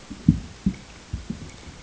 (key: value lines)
label: ambient
recorder: HydroMoth